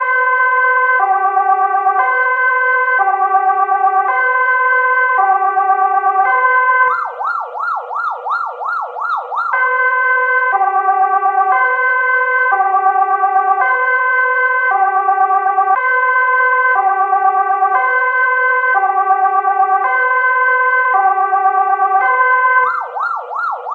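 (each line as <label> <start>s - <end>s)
A police siren repeating rhythmically with changing pitch every 1.25 seconds. 0.0s - 6.9s
A police siren rapidly repeats seven times with quick pitch changes. 6.9s - 9.5s
A police siren repeating rhythmically with changing pitch every 1.25 seconds. 9.5s - 22.7s
A police siren repeats rapidly with quick pitch changes. 22.7s - 23.7s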